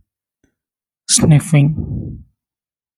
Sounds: Sniff